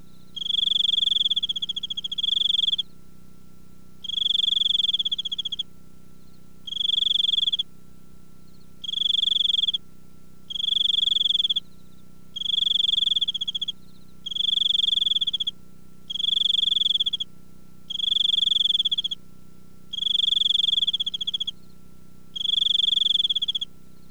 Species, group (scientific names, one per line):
Teleogryllus mitratus
Orthoptera